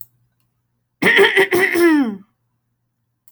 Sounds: Throat clearing